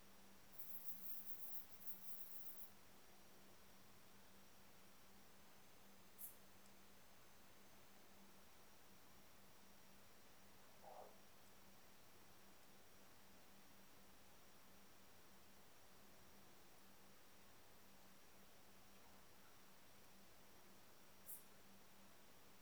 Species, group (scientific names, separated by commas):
Rhacocleis poneli, Orthoptera